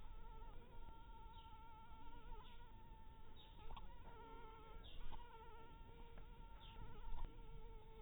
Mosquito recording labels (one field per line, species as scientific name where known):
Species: mosquito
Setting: cup